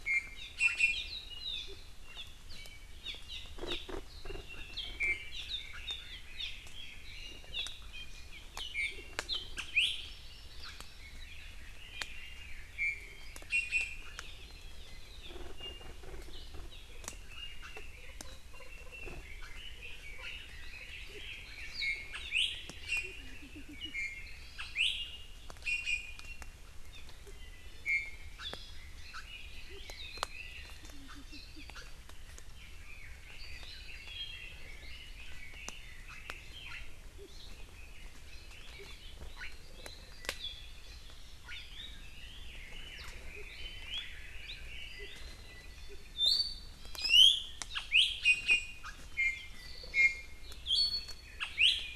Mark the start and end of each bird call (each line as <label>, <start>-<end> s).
Iiwi (Drepanis coccinea), 0.1-1.2 s
Hawaii Amakihi (Chlorodrepanis virens), 1.6-1.8 s
Hawaii Amakihi (Chlorodrepanis virens), 2.1-2.2 s
Hawaii Amakihi (Chlorodrepanis virens), 3.0-3.8 s
Red-billed Leiothrix (Leiothrix lutea), 4.2-7.0 s
Iiwi (Drepanis coccinea), 5.0-5.3 s
Hawaii Amakihi (Chlorodrepanis virens), 5.3-5.5 s
Hawaii Amakihi (Chlorodrepanis virens), 6.3-6.5 s
Hawaii Amakihi (Chlorodrepanis virens), 7.5-7.8 s
Iiwi (Drepanis coccinea), 8.0-8.3 s
Iiwi (Drepanis coccinea), 8.8-9.1 s
Hawaii Amakihi (Chlorodrepanis virens), 9.6-11.1 s
Iiwi (Drepanis coccinea), 9.8-9.9 s
Red-billed Leiothrix (Leiothrix lutea), 10.9-12.8 s
Iiwi (Drepanis coccinea), 12.8-13.2 s
Iiwi (Drepanis coccinea), 13.6-14.2 s
Iiwi (Drepanis coccinea), 15.6-16.1 s
Red-billed Leiothrix (Leiothrix lutea), 18.9-21.6 s
Iiwi (Drepanis coccinea), 21.8-22.6 s
Iiwi (Drepanis coccinea), 22.9-23.2 s
Iiwi (Drepanis coccinea), 23.6-24.4 s
Iiwi (Drepanis coccinea), 24.8-24.9 s
Iiwi (Drepanis coccinea), 25.6-26.6 s
Iiwi (Drepanis coccinea), 27.6-28.4 s
Hawaii Amakihi (Chlorodrepanis virens), 28.4-28.9 s
Red-billed Leiothrix (Leiothrix lutea), 28.8-30.9 s
Red-billed Leiothrix (Leiothrix lutea), 32.5-36.9 s
Hawaii Amakihi (Chlorodrepanis virens), 37.2-37.5 s
Hawaii Amakihi (Chlorodrepanis virens), 38.9-39.0 s
Red-billed Leiothrix (Leiothrix lutea), 42.0-45.2 s
Iiwi (Drepanis coccinea), 46.1-48.9 s
Iiwi (Drepanis coccinea), 49.1-52.0 s